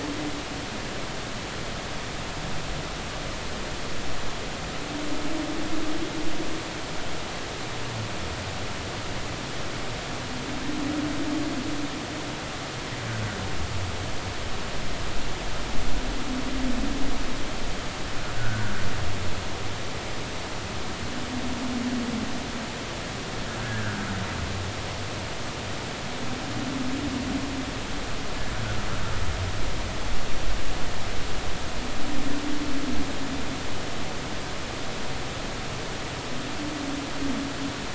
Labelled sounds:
18.3	18.7	humpback whale, 1.3 to 1.8 kHz
23.6	24.1	humpback whale, 1.3 to 1.8 kHz

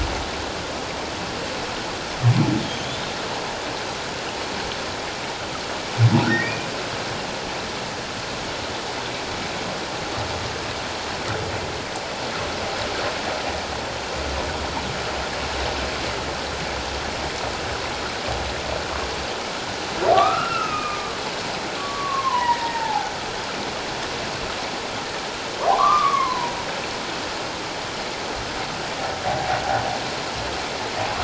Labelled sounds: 6.3	6.7	humpback whale, 1.8 to 2.5 kHz
20.1	23.1	humpback whale, 0.78 to 2.8 kHz
25.7	26.6	humpback whale, 0.78 to 1.3 kHz

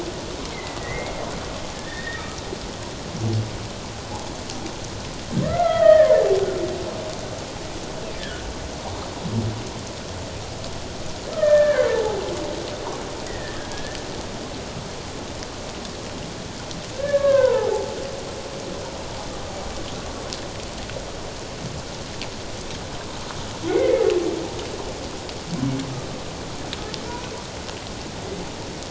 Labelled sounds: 0.5	2.2	humpback whale, 1.6 to 3.8 kHz
5.4	6.1	humpback whale, 1.2 to 2.2 kHz
8.2	8.5	humpback whale, 1.4 to 1.8 kHz
11.3	12.2	humpback whale, 0.78 to 1.9 kHz
13.3	14.0	humpback whale, 1.6 to 2.0 kHz
16.9	17.7	humpback whale, 0.78 to 1.8 kHz
23.7	24.0	humpback whale, 1.9 to 2.2 kHz

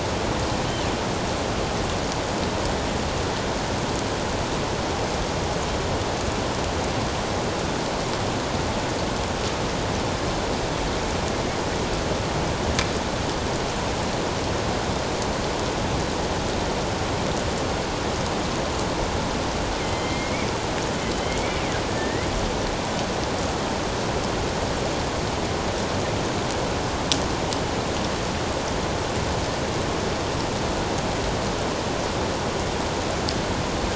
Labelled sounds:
19.8	21.6	killer whale, northern resident, 2.0 to 3.2 kHz
21.9	22.3	killer whale, northern resident, 1.7 to 2.1 kHz

